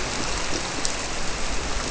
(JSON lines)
{"label": "biophony", "recorder": "SoundTrap 300"}